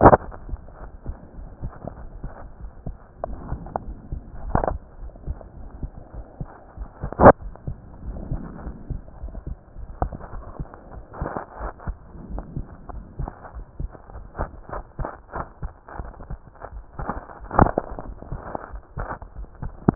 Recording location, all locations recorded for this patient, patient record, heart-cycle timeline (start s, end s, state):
pulmonary valve (PV)
aortic valve (AV)+pulmonary valve (PV)+tricuspid valve (TV)+mitral valve (MV)
#Age: Child
#Sex: Male
#Height: 139.0 cm
#Weight: 32.5 kg
#Pregnancy status: False
#Murmur: Absent
#Murmur locations: nan
#Most audible location: nan
#Systolic murmur timing: nan
#Systolic murmur shape: nan
#Systolic murmur grading: nan
#Systolic murmur pitch: nan
#Systolic murmur quality: nan
#Diastolic murmur timing: nan
#Diastolic murmur shape: nan
#Diastolic murmur grading: nan
#Diastolic murmur pitch: nan
#Diastolic murmur quality: nan
#Outcome: Abnormal
#Campaign: 2015 screening campaign
0.00	0.80	unannotated
0.80	0.92	S1
0.92	1.06	systole
1.06	1.16	S2
1.16	1.38	diastole
1.38	1.52	S1
1.52	1.62	systole
1.62	1.72	S2
1.72	2.00	diastole
2.00	2.10	S1
2.10	2.22	systole
2.22	2.34	S2
2.34	2.60	diastole
2.60	2.72	S1
2.72	2.84	systole
2.84	2.96	S2
2.96	3.26	diastole
3.26	3.40	S1
3.40	3.48	systole
3.48	3.62	S2
3.62	3.86	diastole
3.86	3.98	S1
3.98	4.10	systole
4.10	4.24	S2
4.24	4.46	diastole
4.46	4.64	S1
4.64	4.68	systole
4.68	4.78	S2
4.78	5.00	diastole
5.00	5.12	S1
5.12	5.24	systole
5.24	5.38	S2
5.38	5.60	diastole
5.60	5.70	S1
5.70	5.80	systole
5.80	5.90	S2
5.90	6.16	diastole
6.16	6.26	S1
6.26	6.40	systole
6.40	6.50	S2
6.50	6.78	diastole
6.78	6.90	S1
6.90	7.02	systole
7.02	7.14	S2
7.14	7.42	diastole
7.42	7.54	S1
7.54	7.66	systole
7.66	7.78	S2
7.78	8.06	diastole
8.06	8.24	S1
8.24	8.28	systole
8.28	8.42	S2
8.42	8.64	diastole
8.64	8.76	S1
8.76	8.88	systole
8.88	9.02	S2
9.02	9.21	diastole
9.21	9.36	S1
9.36	9.46	systole
9.46	9.56	S2
9.56	9.78	diastole
9.78	9.88	S1
9.88	9.96	systole
9.96	10.10	S2
10.10	10.34	diastole
10.34	10.48	S1
10.48	10.58	systole
10.58	10.68	S2
10.68	10.94	diastole
10.94	11.04	S1
11.04	11.16	systole
11.16	11.30	S2
11.30	11.60	diastole
11.60	11.72	S1
11.72	11.86	systole
11.86	11.98	S2
11.98	12.28	diastole
12.28	12.46	S1
12.46	12.54	systole
12.54	12.66	S2
12.66	12.90	diastole
12.90	13.04	S1
13.04	13.18	systole
13.18	13.32	S2
13.32	13.56	diastole
13.56	13.66	S1
13.66	13.78	systole
13.78	13.92	S2
13.92	14.14	diastole
14.14	14.26	S1
14.26	14.40	systole
14.40	14.50	S2
14.50	14.74	diastole
14.74	14.84	S1
14.84	14.98	systole
14.98	15.10	S2
15.10	15.36	diastole
15.36	15.46	S1
15.46	15.62	systole
15.62	15.72	S2
15.72	15.98	diastole
15.98	16.14	S1
16.14	16.28	systole
16.28	16.40	S2
16.40	16.74	diastole
16.74	16.86	S1
16.86	16.99	systole
16.99	17.09	S2
17.09	19.95	unannotated